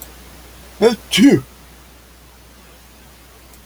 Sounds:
Sneeze